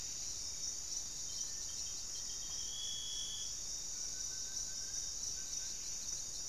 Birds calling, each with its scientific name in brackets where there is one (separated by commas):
Buff-breasted Wren (Cantorchilus leucotis), Black-faced Antthrush (Formicarius analis), unidentified bird, Wing-barred Piprites (Piprites chloris)